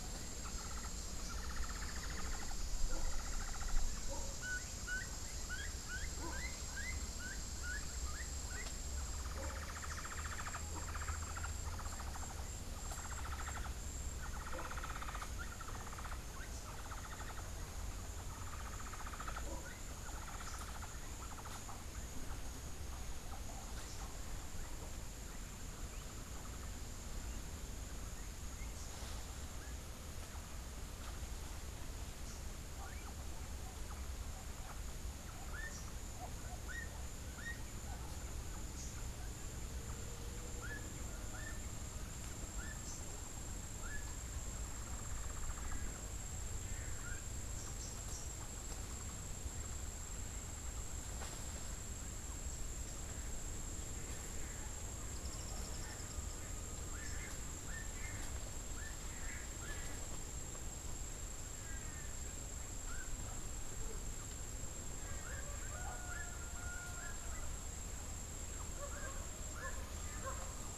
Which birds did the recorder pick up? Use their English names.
Hoffmann's Woodpecker, Gray-headed Chachalaca, Rufous-capped Warbler, Long-tailed Manakin, Tropical Kingbird